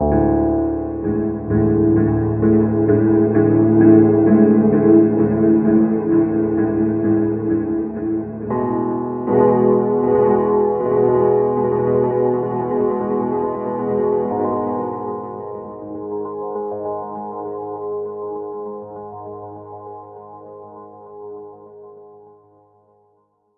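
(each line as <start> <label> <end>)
0.0 Piano chords being played. 22.2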